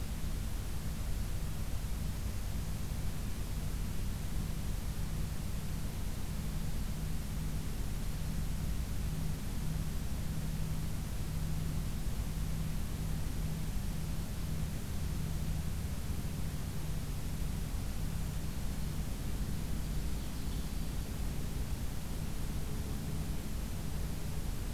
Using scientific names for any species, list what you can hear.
Seiurus aurocapilla, Setophaga virens